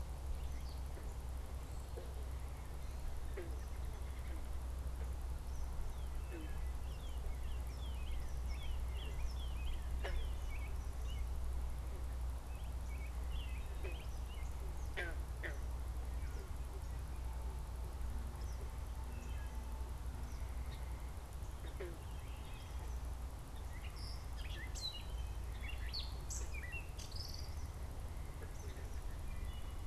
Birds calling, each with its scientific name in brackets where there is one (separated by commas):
Gray Catbird (Dumetella carolinensis), Northern Cardinal (Cardinalis cardinalis), American Robin (Turdus migratorius), Eastern Kingbird (Tyrannus tyrannus)